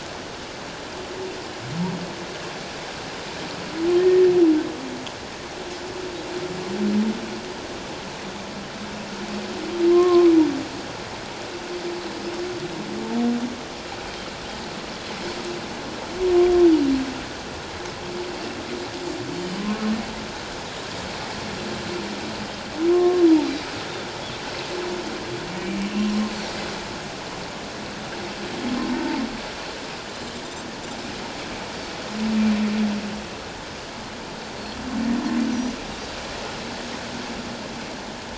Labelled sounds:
9.9	10.3	humpback whale, 0.97 to 1.1 kHz
22.9	23.2	humpback whale, 0.94 to 1.1 kHz
28.9	29.2	humpback whale, 0.84 to 1.0 kHz
35.5	35.8	Pacific white-sided dolphin, 5.7 to 6.1 kHz

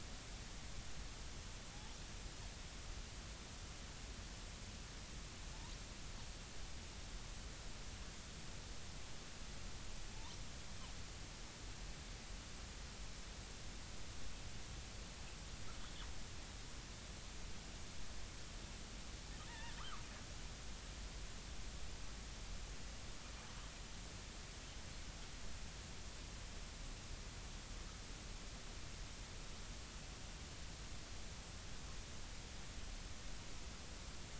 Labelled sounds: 19.5	20.0	killer whale, northern resident, G clan, 0.86 to 2.0 kHz

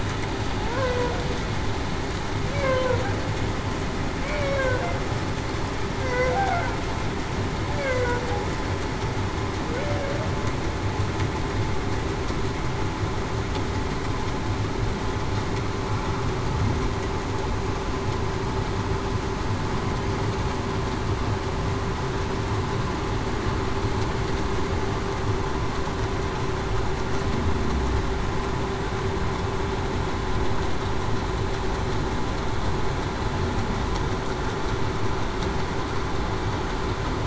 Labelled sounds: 0.6	1.2	humpback whale, 0.45 to 0.56 kHz
2.5	3.0	humpback whale, 0.45 to 1.1 kHz
4.2	4.8	humpback whale, 0.47 to 2.3 kHz
6.0	6.4	humpback whale, 0.47 to 0.54 kHz
7.7	8.2	humpback whale, 0.47 to 0.61 kHz
9.7	10.2	humpback whale, 0.45 to 0.61 kHz

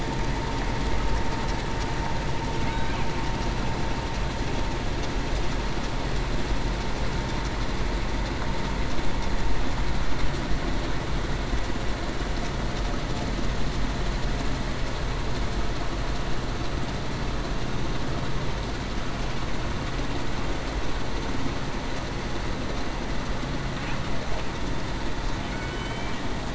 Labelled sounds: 25.6	26.1	killer whale, Bigg's (transient), 3.0 to 3.1 kHz

